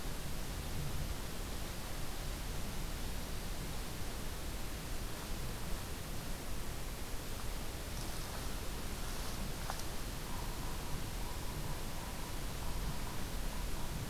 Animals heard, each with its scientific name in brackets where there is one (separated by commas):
Yellow-bellied Sapsucker (Sphyrapicus varius)